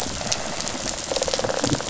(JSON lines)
{"label": "biophony, rattle response", "recorder": "SoundTrap 500"}